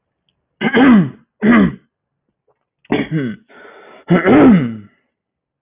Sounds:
Throat clearing